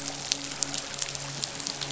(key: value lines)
label: biophony, midshipman
recorder: SoundTrap 500